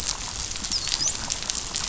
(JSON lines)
{"label": "biophony, dolphin", "recorder": "SoundTrap 500"}